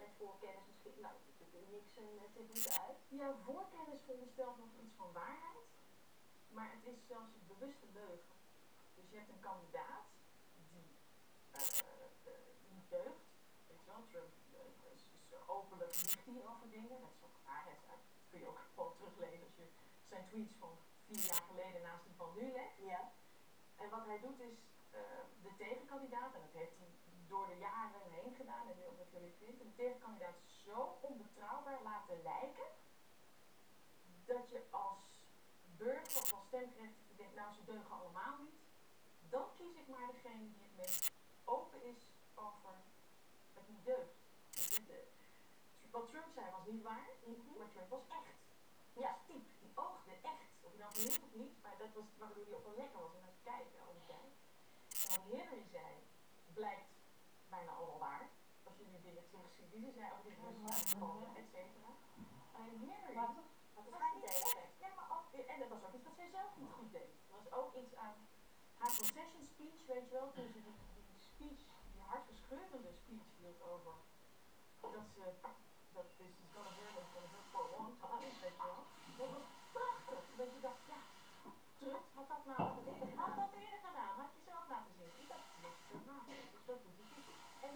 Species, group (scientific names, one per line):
Incertana incerta
Orthoptera